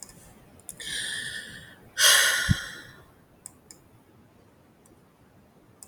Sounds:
Sigh